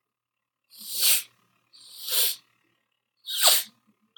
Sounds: Sniff